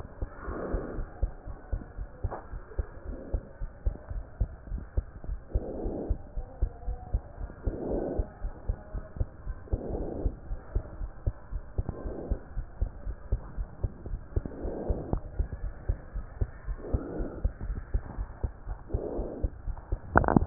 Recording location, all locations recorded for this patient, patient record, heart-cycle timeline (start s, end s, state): pulmonary valve (PV)
aortic valve (AV)+pulmonary valve (PV)+tricuspid valve (TV)+mitral valve (MV)
#Age: Child
#Sex: Female
#Height: 95.0 cm
#Weight: 17.5 kg
#Pregnancy status: False
#Murmur: Absent
#Murmur locations: nan
#Most audible location: nan
#Systolic murmur timing: nan
#Systolic murmur shape: nan
#Systolic murmur grading: nan
#Systolic murmur pitch: nan
#Systolic murmur quality: nan
#Diastolic murmur timing: nan
#Diastolic murmur shape: nan
#Diastolic murmur grading: nan
#Diastolic murmur pitch: nan
#Diastolic murmur quality: nan
#Outcome: Normal
#Campaign: 2015 screening campaign
0.00	1.32	unannotated
1.32	1.46	diastole
1.46	1.56	S1
1.56	1.68	systole
1.68	1.80	S2
1.80	1.98	diastole
1.98	2.08	S1
2.08	2.20	systole
2.20	2.32	S2
2.32	2.52	diastole
2.52	2.62	S1
2.62	2.74	systole
2.74	2.88	S2
2.88	3.08	diastole
3.08	3.18	S1
3.18	3.32	systole
3.32	3.42	S2
3.42	3.62	diastole
3.62	3.70	S1
3.70	3.82	systole
3.82	3.96	S2
3.96	4.10	diastole
4.10	4.24	S1
4.24	4.36	systole
4.36	4.52	S2
4.52	4.70	diastole
4.70	4.84	S1
4.84	4.96	systole
4.96	5.08	S2
5.08	5.28	diastole
5.28	5.40	S1
5.40	5.52	systole
5.52	5.64	S2
5.64	5.82	diastole
5.82	5.94	S1
5.94	6.08	systole
6.08	6.20	S2
6.20	6.36	diastole
6.36	6.46	S1
6.46	6.58	systole
6.58	6.72	S2
6.72	6.86	diastole
6.86	6.98	S1
6.98	7.10	systole
7.10	7.24	S2
7.24	7.40	diastole
7.40	7.50	S1
7.50	7.64	systole
7.64	7.78	S2
7.78	7.90	diastole
7.90	8.02	S1
8.02	8.16	systole
8.16	8.26	S2
8.26	8.42	diastole
8.42	8.52	S1
8.52	8.68	systole
8.68	8.78	S2
8.78	8.94	diastole
8.94	9.04	S1
9.04	9.16	systole
9.16	9.30	S2
9.30	9.48	diastole
9.48	9.58	S1
9.58	9.72	systole
9.72	9.80	S2
9.80	9.92	diastole
9.92	10.08	S1
10.08	10.20	systole
10.20	10.34	S2
10.34	10.48	diastole
10.48	10.60	S1
10.60	10.72	systole
10.72	10.84	S2
10.84	10.98	diastole
10.98	11.10	S1
11.10	11.22	systole
11.22	11.34	S2
11.34	11.52	diastole
11.52	11.62	S1
11.62	11.74	systole
11.74	11.86	S2
11.86	12.04	diastole
12.04	12.16	S1
12.16	12.30	systole
12.30	12.42	S2
12.42	12.56	diastole
12.56	12.66	S1
12.66	12.78	systole
12.78	12.92	S2
12.92	13.06	diastole
13.06	13.16	S1
13.16	13.30	systole
13.30	13.42	S2
13.42	13.56	diastole
13.56	13.68	S1
13.68	13.80	systole
13.80	13.92	S2
13.92	14.06	diastole
14.06	14.20	S1
14.20	14.32	systole
14.32	14.46	S2
14.46	14.64	diastole
14.64	14.74	S1
14.74	14.88	systole
14.88	15.00	S2
15.00	15.12	diastole
15.12	15.24	S1
15.24	15.36	systole
15.36	15.50	S2
15.50	15.62	diastole
15.62	15.74	S1
15.74	15.86	systole
15.86	16.00	S2
16.00	16.16	diastole
16.16	16.28	S1
16.28	16.40	systole
16.40	16.50	S2
16.50	16.68	diastole
16.68	16.80	S1
16.80	16.92	systole
16.92	17.02	S2
17.02	17.16	diastole
17.16	17.30	S1
17.30	17.40	systole
17.40	17.52	S2
17.52	17.66	diastole
17.66	17.80	S1
17.80	17.90	systole
17.90	18.02	S2
18.02	18.16	diastole
18.16	20.46	unannotated